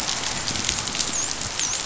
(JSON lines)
{"label": "biophony, dolphin", "recorder": "SoundTrap 500"}